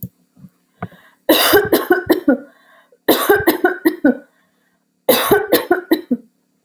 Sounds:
Cough